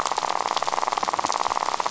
{"label": "biophony, rattle", "recorder": "SoundTrap 500"}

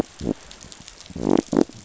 {"label": "biophony", "recorder": "SoundTrap 500"}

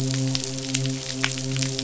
{"label": "biophony, midshipman", "recorder": "SoundTrap 500"}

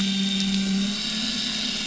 {"label": "anthrophony, boat engine", "recorder": "SoundTrap 500"}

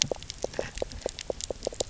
{"label": "biophony, knock croak", "recorder": "SoundTrap 300"}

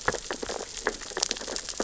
{"label": "biophony, sea urchins (Echinidae)", "recorder": "SoundTrap 600 or HydroMoth"}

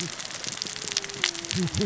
{"label": "biophony, cascading saw", "recorder": "SoundTrap 600 or HydroMoth"}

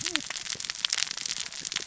{"label": "biophony, cascading saw", "recorder": "SoundTrap 600 or HydroMoth"}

